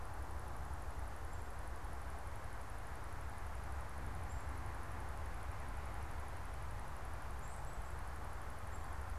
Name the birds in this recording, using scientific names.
Poecile atricapillus